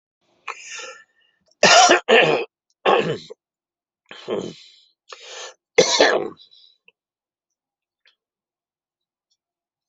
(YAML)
expert_labels:
- quality: good
  cough_type: dry
  dyspnea: false
  wheezing: false
  stridor: false
  choking: false
  congestion: true
  nothing: false
  diagnosis: upper respiratory tract infection
  severity: mild
gender: female
respiratory_condition: false
fever_muscle_pain: false
status: healthy